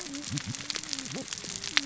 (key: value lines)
label: biophony, cascading saw
recorder: SoundTrap 600 or HydroMoth